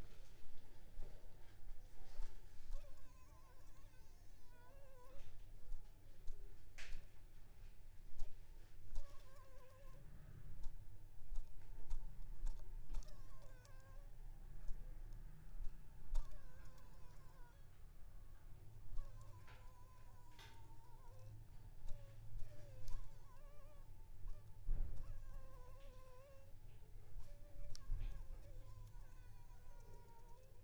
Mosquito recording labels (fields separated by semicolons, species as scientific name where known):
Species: Anopheles arabiensis; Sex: female; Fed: unfed; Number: one; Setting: cup